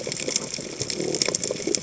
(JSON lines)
{"label": "biophony", "recorder": "HydroMoth"}